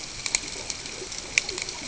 {"label": "ambient", "recorder": "HydroMoth"}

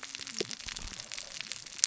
{"label": "biophony, cascading saw", "recorder": "SoundTrap 600 or HydroMoth"}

